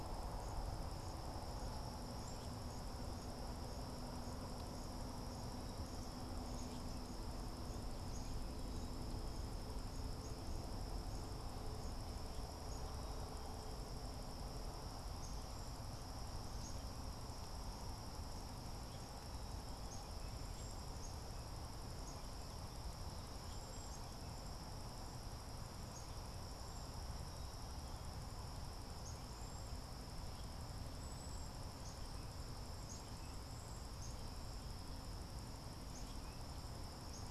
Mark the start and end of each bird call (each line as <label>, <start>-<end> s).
Black-capped Chickadee (Poecile atricapillus), 0.0-37.3 s
Cedar Waxwing (Bombycilla cedrorum), 20.3-34.2 s